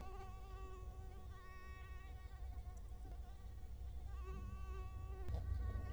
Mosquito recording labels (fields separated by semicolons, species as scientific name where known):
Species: Culex quinquefasciatus; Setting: cup